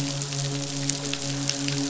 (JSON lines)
{"label": "biophony, midshipman", "recorder": "SoundTrap 500"}